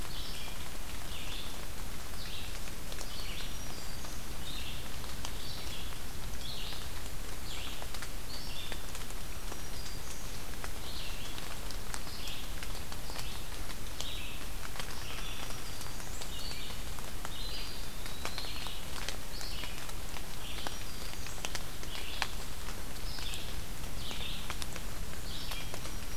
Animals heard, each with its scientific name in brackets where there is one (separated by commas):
Red-eyed Vireo (Vireo olivaceus), Black-throated Green Warbler (Setophaga virens), Eastern Wood-Pewee (Contopus virens)